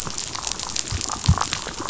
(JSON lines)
{"label": "biophony, damselfish", "recorder": "SoundTrap 500"}